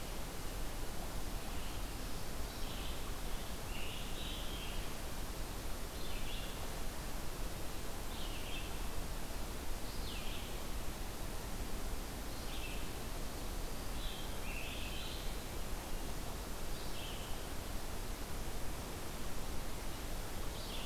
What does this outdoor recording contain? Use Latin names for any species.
Vireo olivaceus, Piranga olivacea